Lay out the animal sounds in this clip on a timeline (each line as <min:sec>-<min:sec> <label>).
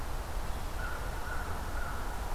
0:00.6-0:02.0 American Crow (Corvus brachyrhynchos)